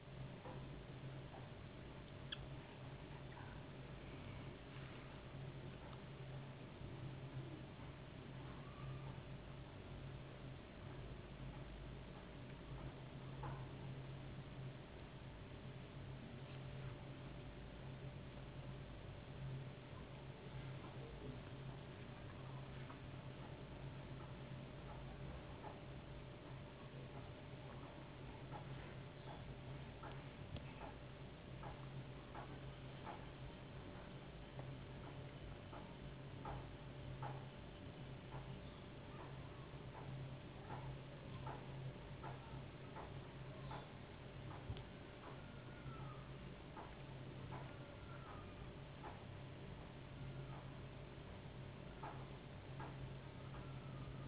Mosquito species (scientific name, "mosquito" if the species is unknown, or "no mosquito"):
no mosquito